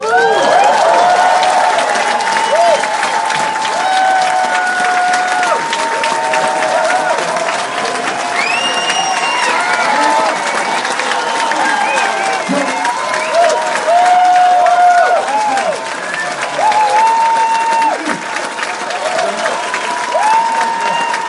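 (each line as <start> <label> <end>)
0.0 Many people are applauding chaotically at the same time. 21.3
0.0 Many people shouting and whistling chaotically at the same time. 21.3
2.3 A person shouts briefly and intensely. 3.0
3.9 A person is shouting loudly. 6.0
8.3 A person whistles sharply. 9.9
12.4 A person is speaking into a microphone with slight distortion. 13.1
14.1 Several people shout briefly. 16.4
16.8 A person shouts sharply. 18.3
20.1 A person is shouting. 21.3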